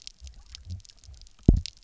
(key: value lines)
label: biophony, double pulse
recorder: SoundTrap 300